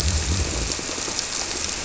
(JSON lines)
{"label": "biophony, squirrelfish (Holocentrus)", "recorder": "SoundTrap 300"}
{"label": "biophony", "recorder": "SoundTrap 300"}